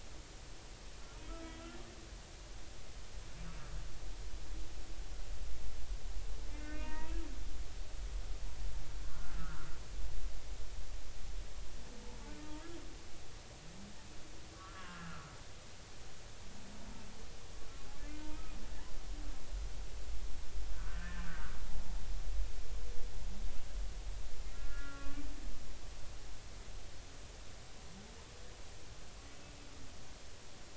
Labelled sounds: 1.3	1.6	humpback whale, 1.2 to 1.4 kHz
6.5	7.2	humpback whale, 0.86 to 2.7 kHz
9.1	9.7	humpback whale, 0.99 to 1.6 kHz
14.6	15.3	humpback whale, 1.2 to 1.8 kHz
18.0	18.4	humpback whale, 0.86 to 2.5 kHz
20.7	21.6	humpback whale, 1.1 to 1.9 kHz
24.5	25.2	humpback whale, 1.1 to 1.8 kHz

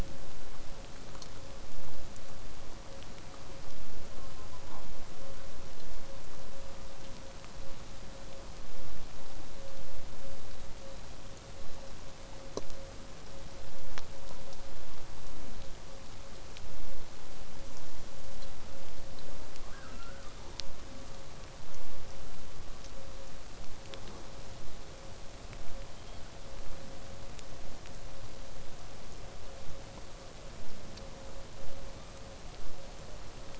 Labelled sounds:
19.7	20.5	killer whale, southern resident, 0.75 to 5.5 kHz
25.9	26.3	killer whale, southern resident, 3.0 to 4.6 kHz

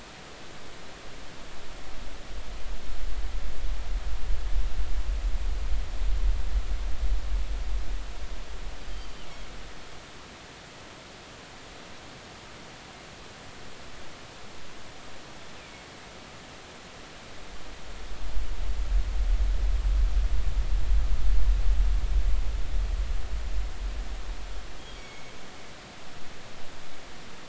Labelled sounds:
9.0	9.2	killer whale, northern resident, G clan, GG subclan, call N23ii, 4.6 to 4.7 kHz
25.0	25.3	killer whale, northern resident, G clan, GG subclan, call N23ii, 2.1 to 6.8 kHz

